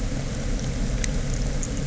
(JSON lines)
{"label": "anthrophony, boat engine", "recorder": "SoundTrap 300"}